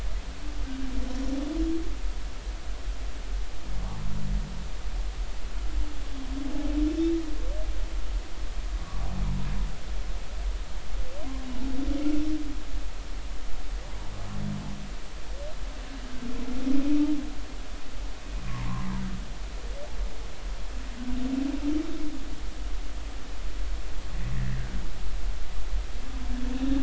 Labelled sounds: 6.9	7.2	humpback whale, 2.6 to 2.7 kHz
8.8	9.1	humpback whale, 1.1 to 1.2 kHz
18.4	18.7	humpback whale, 0.86 to 1.2 kHz

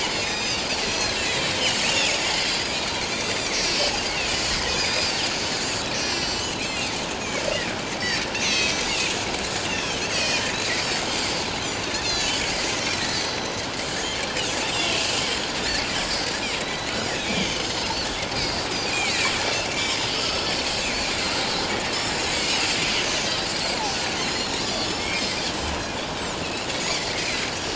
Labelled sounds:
0.0	2.2	Pacific white-sided dolphin, 2.1 to 7.5 kHz
2.5	2.8	Pacific white-sided dolphin, 4.7 to 5.0 kHz
3.1	6.9	Pacific white-sided dolphin, 2.2 to 7.5 kHz
8.4	8.9	Pacific white-sided dolphin, 2.0 to 6.6 kHz
9.6	10.5	Pacific white-sided dolphin, 1.7 to 6.4 kHz
11.6	12.4	Pacific white-sided dolphin, 3.2 to 6.3 kHz
12.8	13.4	Pacific white-sided dolphin, 1.7 to 6.1 kHz
14.6	14.9	Pacific white-sided dolphin, 3.3 to 3.8 kHz
16.6	18.1	Pacific white-sided dolphin, 1.9 to 6.4 kHz
18.3	20.0	Pacific white-sided dolphin, 1.8 to 5.6 kHz
21.9	22.2	Pacific white-sided dolphin, 5.0 to 5.5 kHz
23.0	23.3	Pacific white-sided dolphin, 6.0 to 6.3 kHz
24.2	25.3	Pacific white-sided dolphin, 2.1 to 7.7 kHz
26.4	27.4	Pacific white-sided dolphin, 1.8 to 6.4 kHz

